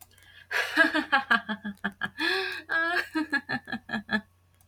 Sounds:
Laughter